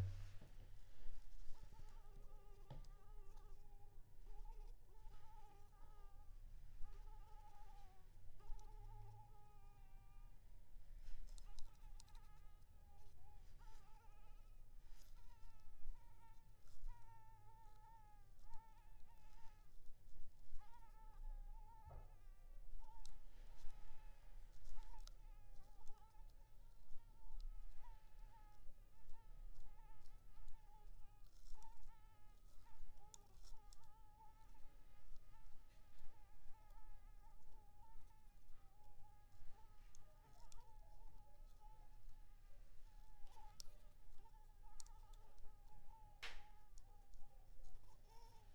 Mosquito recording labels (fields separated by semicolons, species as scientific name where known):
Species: Anopheles maculipalpis; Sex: female; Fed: unfed; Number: one; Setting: cup